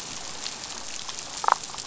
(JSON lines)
{"label": "biophony, damselfish", "recorder": "SoundTrap 500"}